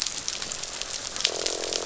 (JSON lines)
{"label": "biophony, croak", "recorder": "SoundTrap 500"}